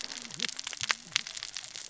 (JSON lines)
{"label": "biophony, cascading saw", "recorder": "SoundTrap 600 or HydroMoth"}